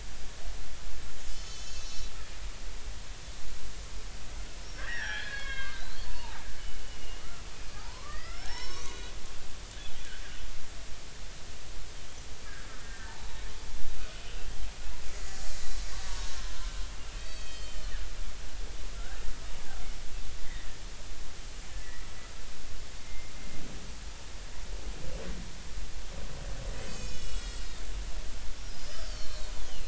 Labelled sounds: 1.3	2.1	killer whale, Bigg's (transient), 2.9 to 6.7 kHz
4.8	6.4	killer whale, Bigg's (transient), 0.83 to 5.7 kHz
6.8	9.1	killer whale, Bigg's (transient), 0.80 to 6.5 kHz
12.5	13.5	killer whale, Bigg's (transient), 0.80 to 4.0 kHz
15.1	15.4	killer whale, Bigg's (transient), 1.9 to 2.0 kHz
16.0	16.7	killer whale, Bigg's (transient), 0.90 to 1.4 kHz
17.1	18.0	killer whale, Bigg's (transient), 2.5 to 7.6 kHz
18.9	19.2	killer whale, Bigg's (transient), 1.3 to 1.8 kHz
20.4	20.7	killer whale, Bigg's (transient), 1.7 to 2.1 kHz
21.8	22.1	killer whale, Bigg's (transient), 1.7 to 2.1 kHz
23.0	23.3	killer whale, Bigg's (transient), 2.0 to 2.1 kHz
26.8	27.8	killer whale, Bigg's (transient), 1.3 to 7.9 kHz
28.7	29.8	killer whale, Bigg's (transient), 2.8 to 5.2 kHz

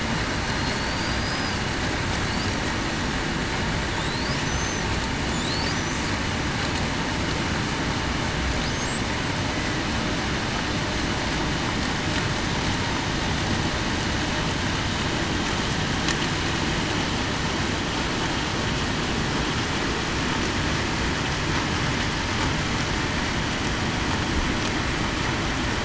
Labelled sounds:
0.7	1.5	killer whale, Bigg's (transient), 4.4 to 5.1 kHz
4.5	4.9	killer whale, Bigg's (transient), 5.9 to 6.3 kHz
9.0	9.3	killer whale, Bigg's (transient), 7.8 to 8.0 kHz

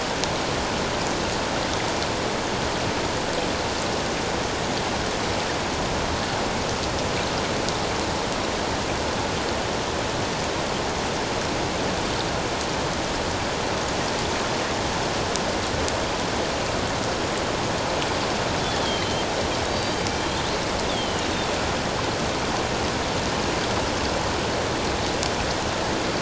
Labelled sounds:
18.8	20.0	killer whale, northern resident, 3.0 to 4.7 kHz
20.9	21.3	killer whale, northern resident, 2.8 to 3.7 kHz

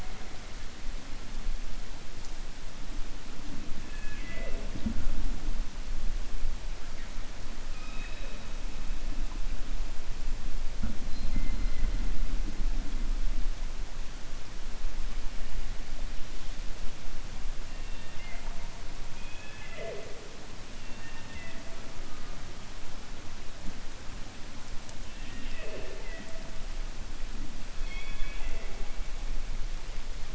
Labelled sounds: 17.8	18.6	killer whale, 0.69 to 3.7 kHz
20.8	21.6	killer whale, 0.91 to 3.7 kHz
27.7	28.8	killer whale, 0.37 to 4.6 kHz

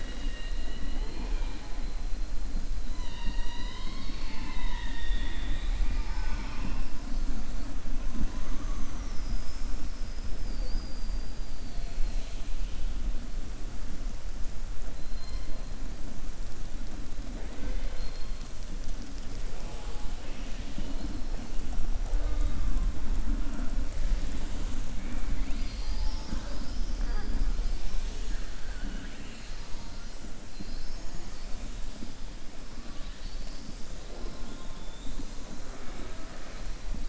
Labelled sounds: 20.1	21.1	killer whale, southern resident, 1.8 to 5.1 kHz
28.6	29.6	killer whale, southern resident, 1.4 to 4.3 kHz
34.4	35.2	killer whale, southern resident, 3.3 to 4.2 kHz

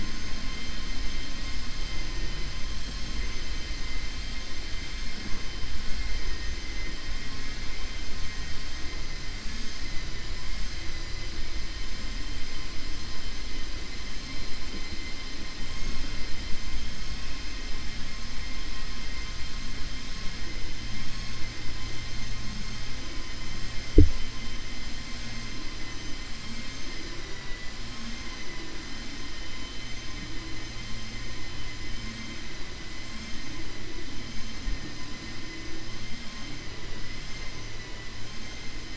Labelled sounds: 9.9	10.3	vessel noise, 1.8 to 3.8 kHz
37.7	38.1	vessel noise, 0.99 to 3.0 kHz

